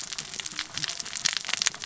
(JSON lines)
{"label": "biophony, cascading saw", "recorder": "SoundTrap 600 or HydroMoth"}